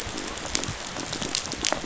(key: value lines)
label: biophony, rattle response
recorder: SoundTrap 500